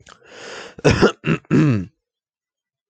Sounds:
Throat clearing